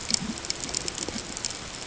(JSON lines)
{"label": "ambient", "recorder": "HydroMoth"}